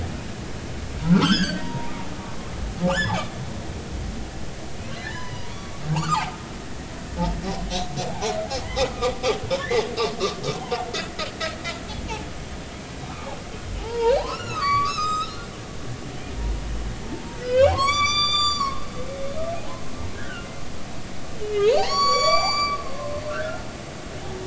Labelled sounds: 1.0	1.7	humpback whale, 1.2 to 5.4 kHz
2.6	3.2	humpback whale, 0.90 to 5.3 kHz
5.0	6.3	humpback whale, 0.80 to 7.0 kHz
8.9	9.1	humpback whale, 1.1 to 1.4 kHz
9.6	9.8	humpback whale, 1.7 to 2.2 kHz
13.8	18.8	humpback whale, 0.80 to 7.7 kHz
19.5	20.5	humpback whale, 0.80 to 1.9 kHz
21.5	23.7	humpback whale, 0.80 to 8.0 kHz

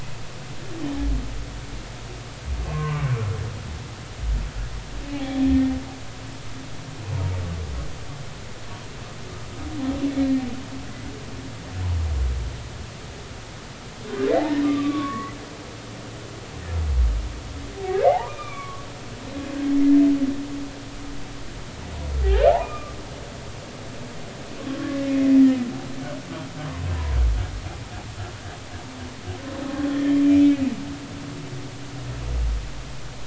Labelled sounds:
2.6	3.1	humpback whale, 0.93 to 1.6 kHz
5.1	5.7	humpback whale, 0.80 to 3.5 kHz
14.6	15.4	humpback whale, 1.1 to 3.6 kHz
18.1	18.9	humpback whale, 0.80 to 3.7 kHz
22.2	22.9	humpback whale, 1.1 to 2.9 kHz
24.7	25.3	humpback whale, 1.1 to 2.2 kHz
29.9	30.6	humpback whale, 1.7 to 2.6 kHz

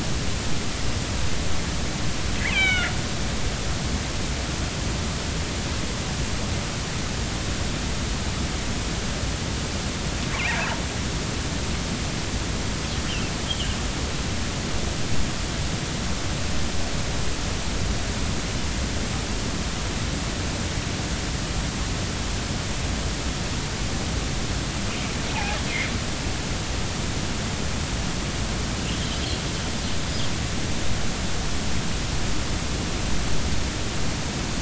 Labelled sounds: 2.5	2.9	killer whale, northern resident, A clan, AB subclan, call N01ii, 1.3 to 3.9 kHz
10.3	10.6	killer whale, northern resident, A clan, AB subclan, 2.0 to 2.9 kHz
13.1	13.3	killer whale, northern resident, A clan, AB subclan, 2.5 to 3.2 kHz
25.3	25.6	killer whale, northern resident, A clan, AB subclan, 0.80 to 0.96 kHz

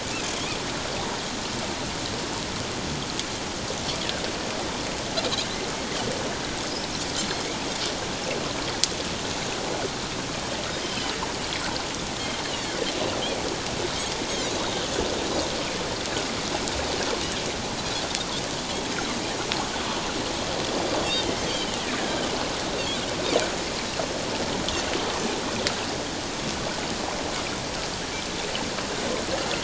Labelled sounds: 7.2	7.4	Pacific white-sided dolphin, 4.0 to 4.3 kHz
10.8	11.1	Pacific white-sided dolphin, 3.0 to 3.2 kHz
12.5	12.8	Pacific white-sided dolphin, 3.0 to 3.5 kHz
14.3	14.8	Pacific white-sided dolphin, 3.6 to 4.4 kHz
21.4	21.8	Pacific white-sided dolphin, 2.8 to 3.3 kHz

